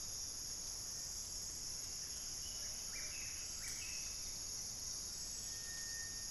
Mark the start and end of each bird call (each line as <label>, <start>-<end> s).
Buff-breasted Wren (Cantorchilus leucotis), 0.0-4.3 s
Plumbeous Pigeon (Patagioenas plumbea), 2.4-3.3 s